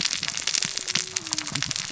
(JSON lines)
{"label": "biophony, cascading saw", "recorder": "SoundTrap 600 or HydroMoth"}